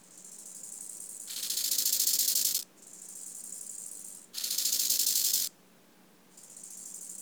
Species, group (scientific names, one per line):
Chorthippus eisentrauti
Orthoptera